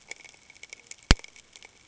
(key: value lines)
label: ambient
recorder: HydroMoth